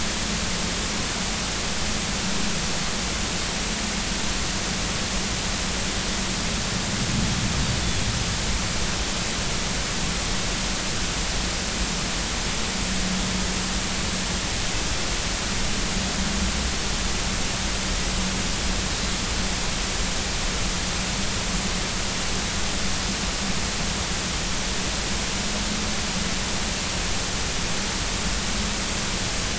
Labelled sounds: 7.8	8.1	Pacific white-sided dolphin, 3.3 to 3.5 kHz

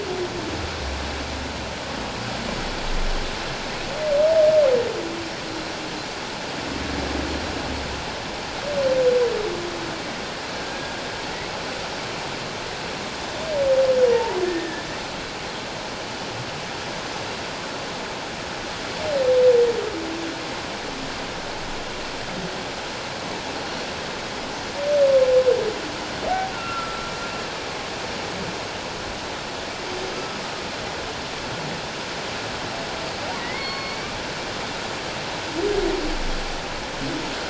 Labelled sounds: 10.6	11.0	humpback whale, 1.5 to 1.7 kHz
14.1	14.8	humpback whale, 0.84 to 1.8 kHz
26.5	27.0	humpback whale, 1.3 to 1.5 kHz
30.1	30.4	humpback whale, 1.2 to 1.3 kHz
33.4	34.2	humpback whale, 1.0 to 4.6 kHz

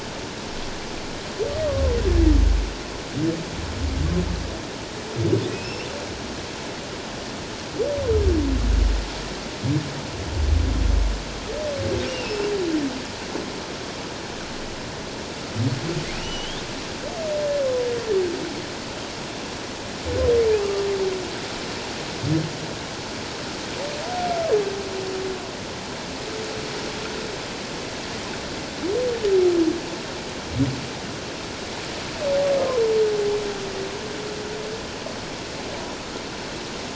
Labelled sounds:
1.7	1.9	humpback whale, 1.0 to 1.2 kHz
5.5	5.9	humpback whale, 2.4 to 2.8 kHz
12.1	12.5	humpback whale, 2.5 to 2.9 kHz
16.2	16.6	humpback whale, 2.8 to 3.8 kHz
20.6	20.9	humpback whale, 1.1 to 1.2 kHz

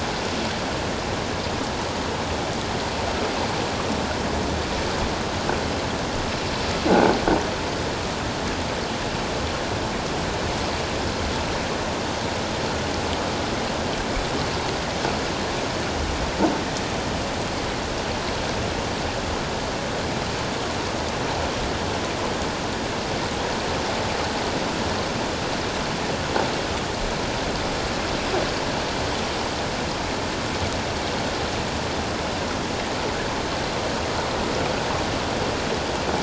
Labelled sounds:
6.9	7.1	croaking sound likely from a nearby submerged object, 1.4 to 1.6 kHz

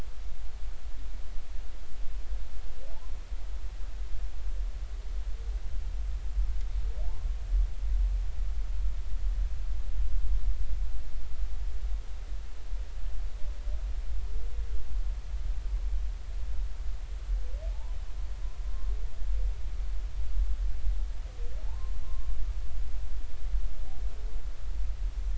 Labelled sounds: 17.7	18.0	humpback whale, 0.80 to 1.1 kHz
21.6	22.3	humpback whale, 0.83 to 1.1 kHz

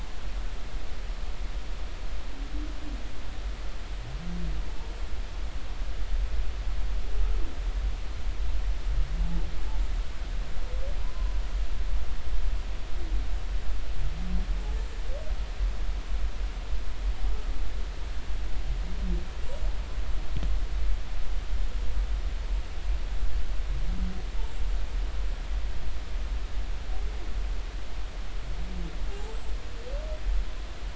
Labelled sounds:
29.1	29.4	humpback whale, 0.80 to 0.93 kHz

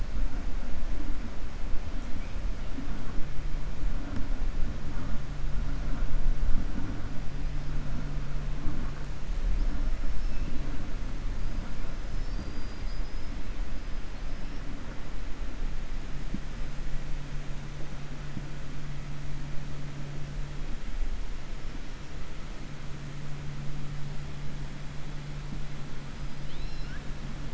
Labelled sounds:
10.2	10.6	killer whale, 2.6 to 3.4 kHz
12.0	13.3	killer whale, 4.1 to 5.7 kHz
26.2	27.0	killer whale, 1.4 to 5.5 kHz

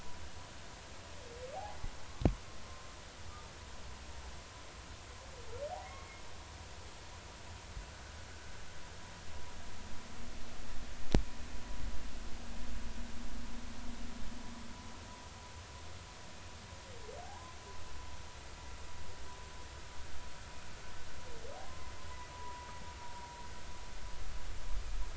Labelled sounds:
5.7	6.2	humpback whale, 0.80 to 2.2 kHz
17.2	17.6	humpback whale, 0.80 to 1.1 kHz
21.7	22.7	humpback whale, 0.93 to 1.1 kHz

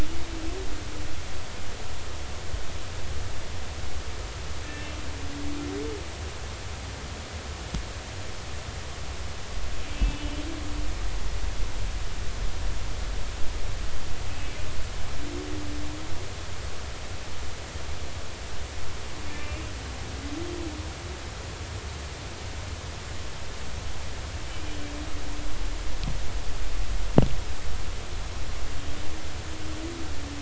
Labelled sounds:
4.7	5.0	humpback whale, 2.6 to 2.7 kHz
10.0	10.3	humpback whale, 2.5 to 2.7 kHz
19.3	19.6	humpback whale, 2.3 to 2.5 kHz
24.5	24.8	humpback whale, 2.2 to 2.5 kHz

